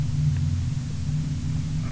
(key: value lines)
label: anthrophony, boat engine
recorder: SoundTrap 300